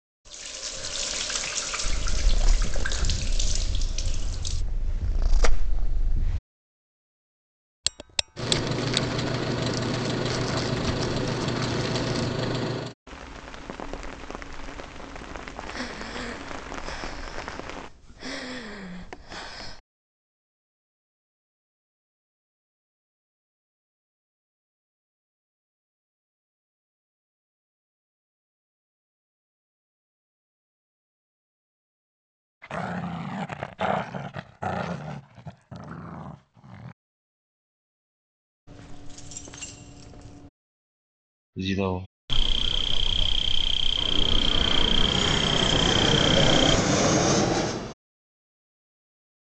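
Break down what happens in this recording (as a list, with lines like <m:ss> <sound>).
0:00-0:30
0:00 the sound of a sink filling or washing
0:02 a cat purrs
0:08 ticking is audible
0:08 a truck can be heard
0:13 there is rain
0:16 someone breathes
0:30-0:49
0:33 you can hear growling
0:39 keys jangle quietly
0:42 a voice says "zero"
0:42 the sound of an insect
0:44 a fixed-wing aircraft is heard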